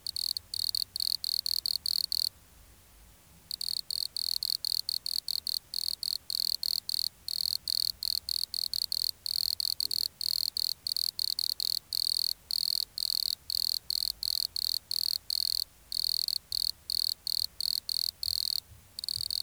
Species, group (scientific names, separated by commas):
Nemobius sylvestris, Orthoptera